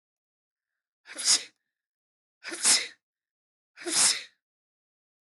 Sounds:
Sneeze